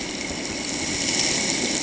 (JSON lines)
{"label": "ambient", "recorder": "HydroMoth"}